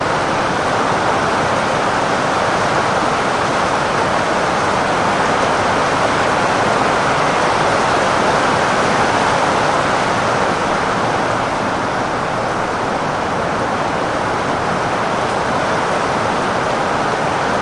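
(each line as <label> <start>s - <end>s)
Heavy rain is falling outdoors. 0.0s - 17.6s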